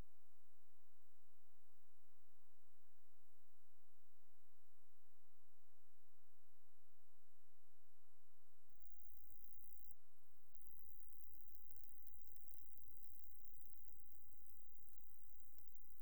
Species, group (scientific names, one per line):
Stenobothrus rubicundulus
Orthoptera